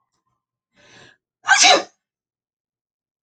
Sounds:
Sneeze